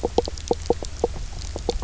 {"label": "biophony, knock croak", "recorder": "SoundTrap 300"}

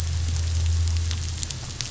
{"label": "anthrophony, boat engine", "recorder": "SoundTrap 500"}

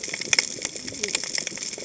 {"label": "biophony, cascading saw", "recorder": "HydroMoth"}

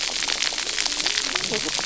{"label": "biophony, cascading saw", "recorder": "SoundTrap 300"}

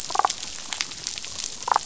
{"label": "biophony, damselfish", "recorder": "SoundTrap 500"}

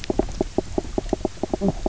{"label": "biophony, knock croak", "recorder": "SoundTrap 300"}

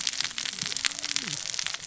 {"label": "biophony, cascading saw", "recorder": "SoundTrap 600 or HydroMoth"}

